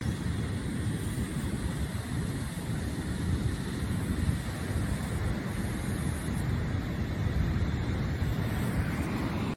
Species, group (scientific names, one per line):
Haemopsalta aktites
Cicadidae